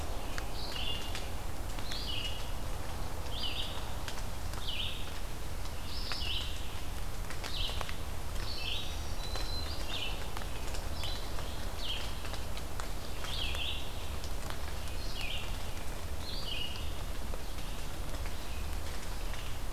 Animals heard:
Red-eyed Vireo (Vireo olivaceus), Black-throated Green Warbler (Setophaga virens)

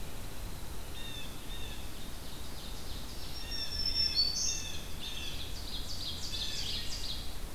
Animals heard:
Ovenbird (Seiurus aurocapilla), Blue Jay (Cyanocitta cristata), Pine Warbler (Setophaga pinus), Black-throated Green Warbler (Setophaga virens)

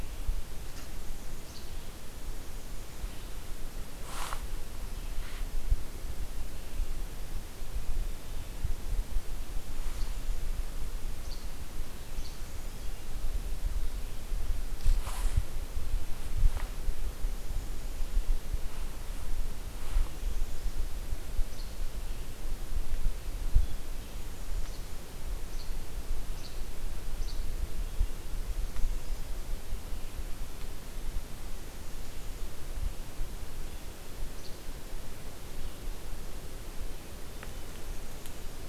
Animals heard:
Least Flycatcher (Empidonax minimus)

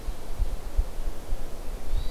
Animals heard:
Hermit Thrush (Catharus guttatus)

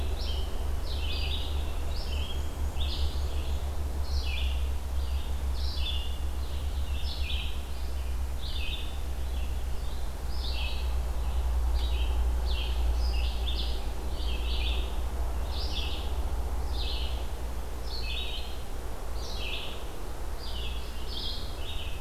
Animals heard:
Red-eyed Vireo (Vireo olivaceus), Black-and-white Warbler (Mniotilta varia)

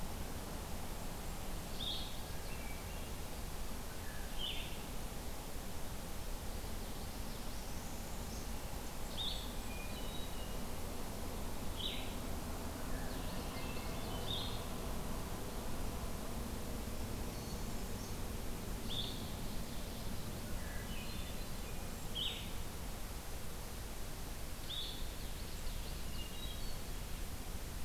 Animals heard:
Common Yellowthroat (Geothlypis trichas), Northern Parula (Setophaga americana), Hermit Thrush (Catharus guttatus), Golden-crowned Kinglet (Regulus satrapa), Red-winged Blackbird (Agelaius phoeniceus), Blue-headed Vireo (Vireo solitarius)

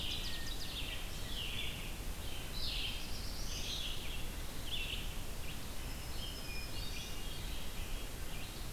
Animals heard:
Ovenbird (Seiurus aurocapilla), Black-throated Green Warbler (Setophaga virens), Hermit Thrush (Catharus guttatus), Black-throated Blue Warbler (Setophaga caerulescens), Red-eyed Vireo (Vireo olivaceus)

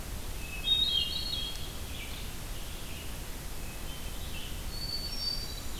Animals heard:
Hermit Thrush (Catharus guttatus), Red-eyed Vireo (Vireo olivaceus)

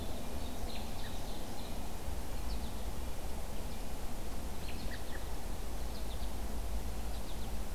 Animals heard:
American Goldfinch (Spinus tristis), Ovenbird (Seiurus aurocapilla), American Robin (Turdus migratorius)

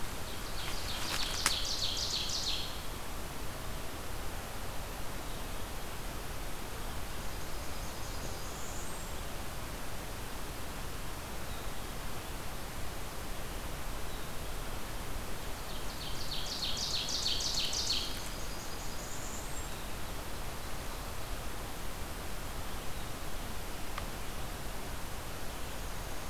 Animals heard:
Ovenbird (Seiurus aurocapilla), Blackburnian Warbler (Setophaga fusca), Black-capped Chickadee (Poecile atricapillus)

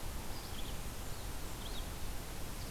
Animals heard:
Red-eyed Vireo (Vireo olivaceus), Blackburnian Warbler (Setophaga fusca)

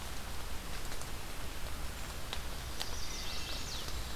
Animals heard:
Wood Thrush (Hylocichla mustelina), Chestnut-sided Warbler (Setophaga pensylvanica)

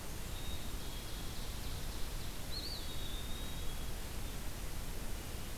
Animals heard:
Ovenbird (Seiurus aurocapilla), Black-capped Chickadee (Poecile atricapillus), Wood Thrush (Hylocichla mustelina), Eastern Wood-Pewee (Contopus virens)

